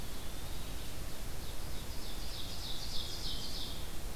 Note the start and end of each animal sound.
0.0s-0.9s: Eastern Wood-Pewee (Contopus virens)
1.1s-3.9s: Ovenbird (Seiurus aurocapilla)

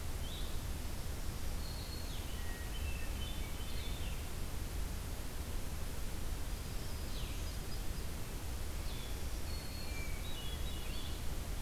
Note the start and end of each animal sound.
0.0s-9.2s: Blue-headed Vireo (Vireo solitarius)
0.9s-2.4s: Black-throated Green Warbler (Setophaga virens)
2.3s-4.1s: Hermit Thrush (Catharus guttatus)
6.4s-8.3s: Hermit Thrush (Catharus guttatus)
8.8s-10.2s: Black-throated Green Warbler (Setophaga virens)
9.8s-11.3s: Hermit Thrush (Catharus guttatus)

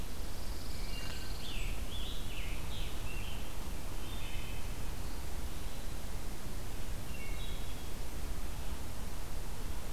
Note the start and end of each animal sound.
0.1s-1.6s: Pine Warbler (Setophaga pinus)
0.6s-1.5s: Wood Thrush (Hylocichla mustelina)
0.7s-3.5s: Scarlet Tanager (Piranga olivacea)
0.7s-1.8s: Blackburnian Warbler (Setophaga fusca)
3.8s-4.9s: Wood Thrush (Hylocichla mustelina)
6.8s-8.0s: Wood Thrush (Hylocichla mustelina)

